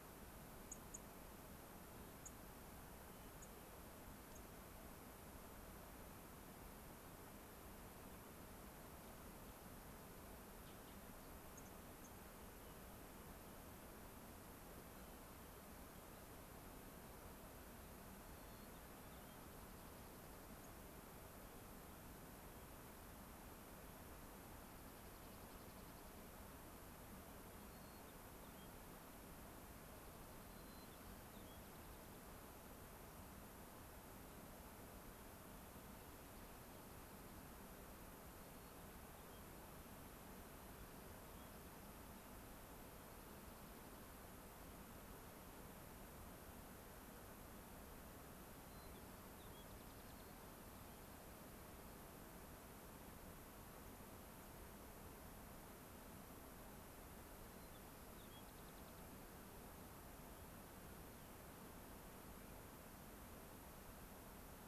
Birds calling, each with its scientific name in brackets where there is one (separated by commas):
Rock Wren (Salpinctes obsoletus), unidentified bird, White-crowned Sparrow (Zonotrichia leucophrys)